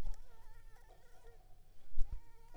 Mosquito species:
Anopheles squamosus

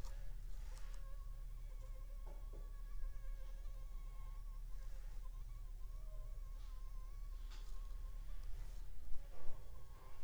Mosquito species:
Anopheles funestus s.s.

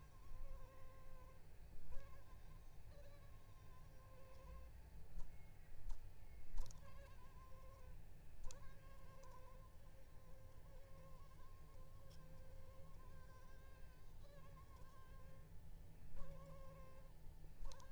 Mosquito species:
Anopheles arabiensis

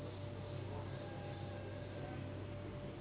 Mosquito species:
Anopheles gambiae s.s.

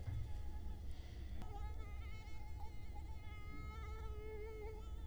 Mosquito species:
Culex quinquefasciatus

